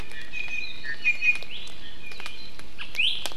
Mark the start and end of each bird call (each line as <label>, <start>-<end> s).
Iiwi (Drepanis coccinea), 0.1-3.2 s